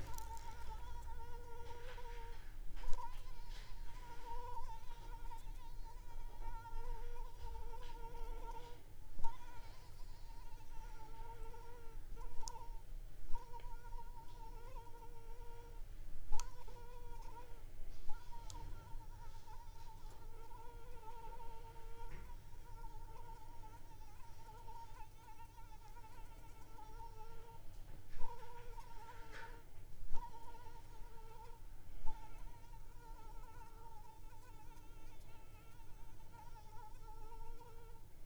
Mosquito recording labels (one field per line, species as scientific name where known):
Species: Anopheles arabiensis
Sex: female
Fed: unfed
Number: one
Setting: cup